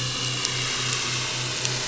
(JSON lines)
{"label": "anthrophony, boat engine", "recorder": "SoundTrap 500"}